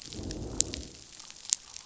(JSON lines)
{"label": "biophony, growl", "recorder": "SoundTrap 500"}